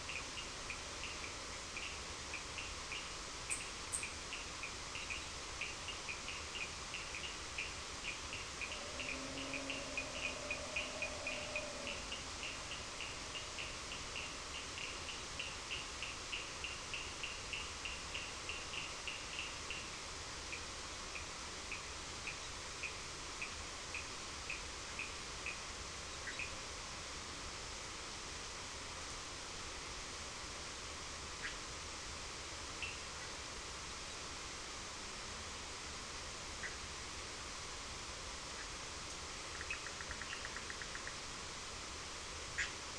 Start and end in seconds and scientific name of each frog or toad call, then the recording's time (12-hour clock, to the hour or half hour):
0.0	27.0	Sphaenorhynchus surdus
32.8	33.1	Sphaenorhynchus surdus
39.2	42.8	Boana bischoffi
39.6	40.5	Sphaenorhynchus surdus
7pm